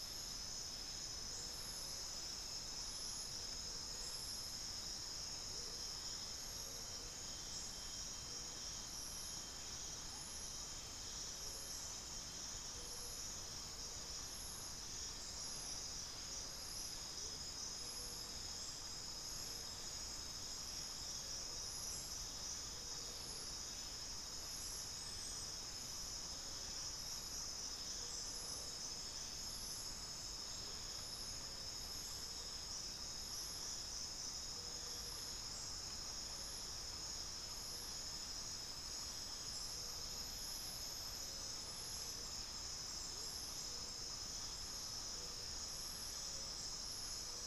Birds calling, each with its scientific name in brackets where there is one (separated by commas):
Speckled Chachalaca (Ortalis guttata), Amazonian Motmot (Momotus momota), unidentified bird